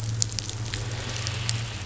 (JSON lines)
{"label": "anthrophony, boat engine", "recorder": "SoundTrap 500"}